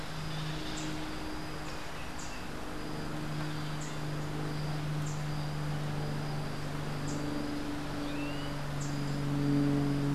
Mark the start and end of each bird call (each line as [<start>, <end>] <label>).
[0.60, 1.00] Rufous-capped Warbler (Basileuterus rufifrons)
[2.10, 2.50] Rufous-capped Warbler (Basileuterus rufifrons)
[3.70, 4.10] Rufous-capped Warbler (Basileuterus rufifrons)
[4.90, 5.30] Rufous-capped Warbler (Basileuterus rufifrons)
[6.80, 7.30] Rufous-capped Warbler (Basileuterus rufifrons)
[7.80, 8.60] Clay-colored Thrush (Turdus grayi)